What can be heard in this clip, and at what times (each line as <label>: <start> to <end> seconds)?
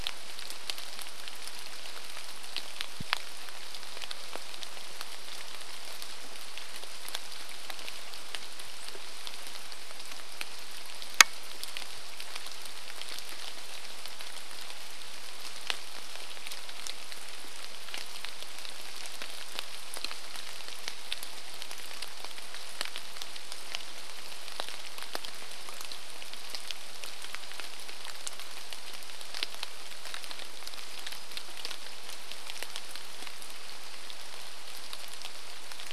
rain: 0 to 36 seconds